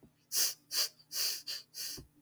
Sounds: Sniff